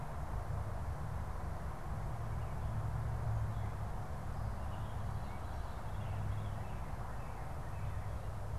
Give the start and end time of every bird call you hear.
5.7s-8.5s: Northern Cardinal (Cardinalis cardinalis)

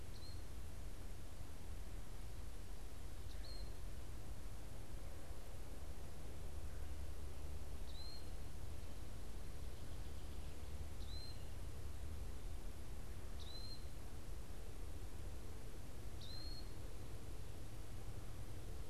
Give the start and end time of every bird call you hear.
0.0s-18.9s: Eastern Wood-Pewee (Contopus virens)

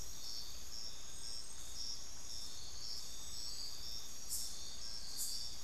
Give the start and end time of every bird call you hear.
0.0s-5.6s: Little Tinamou (Crypturellus soui)

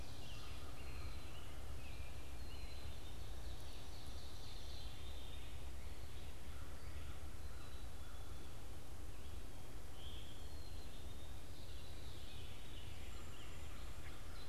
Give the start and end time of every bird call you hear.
0.0s-14.5s: Black-capped Chickadee (Poecile atricapillus)
0.0s-14.5s: Red-eyed Vireo (Vireo olivaceus)
0.2s-2.0s: American Crow (Corvus brachyrhynchos)
3.2s-5.4s: Ovenbird (Seiurus aurocapilla)
6.4s-8.7s: American Crow (Corvus brachyrhynchos)
9.8s-10.5s: Veery (Catharus fuscescens)
11.4s-13.4s: Veery (Catharus fuscescens)
14.0s-14.5s: Ovenbird (Seiurus aurocapilla)

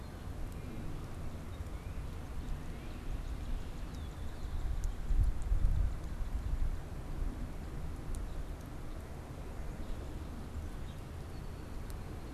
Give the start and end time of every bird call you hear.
3.8s-4.3s: Northern Cardinal (Cardinalis cardinalis)

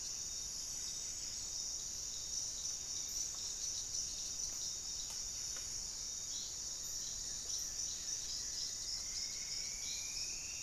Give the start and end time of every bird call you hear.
0.0s-10.6s: Buff-breasted Wren (Cantorchilus leucotis)
6.7s-8.7s: Goeldi's Antbird (Akletos goeldii)
8.4s-10.6s: Striped Woodcreeper (Xiphorhynchus obsoletus)

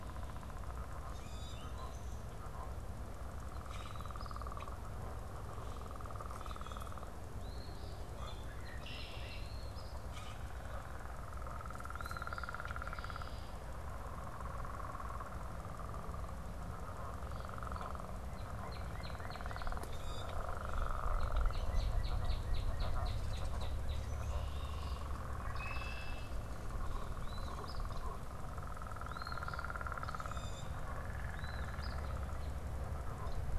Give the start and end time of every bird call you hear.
0.9s-2.2s: Common Grackle (Quiscalus quiscula)
3.6s-4.1s: Common Grackle (Quiscalus quiscula)
3.7s-4.4s: Eastern Phoebe (Sayornis phoebe)
6.2s-7.1s: Common Grackle (Quiscalus quiscula)
7.3s-8.1s: Eastern Phoebe (Sayornis phoebe)
8.0s-8.5s: Common Grackle (Quiscalus quiscula)
8.1s-9.6s: Northern Cardinal (Cardinalis cardinalis)
8.5s-9.6s: Red-winged Blackbird (Agelaius phoeniceus)
9.9s-10.5s: Common Grackle (Quiscalus quiscula)
11.9s-12.6s: Eastern Phoebe (Sayornis phoebe)
17.6s-24.2s: Northern Cardinal (Cardinalis cardinalis)
19.7s-20.6s: Common Grackle (Quiscalus quiscula)
24.0s-26.4s: Red-winged Blackbird (Agelaius phoeniceus)
24.4s-25.1s: Eastern Phoebe (Sayornis phoebe)
27.1s-27.9s: Eastern Phoebe (Sayornis phoebe)
29.0s-29.8s: Eastern Phoebe (Sayornis phoebe)
29.9s-30.9s: Common Grackle (Quiscalus quiscula)
31.3s-32.1s: Eastern Phoebe (Sayornis phoebe)

